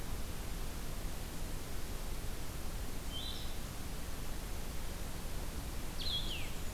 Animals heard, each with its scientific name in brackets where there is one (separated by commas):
Blue-headed Vireo (Vireo solitarius), Blackburnian Warbler (Setophaga fusca)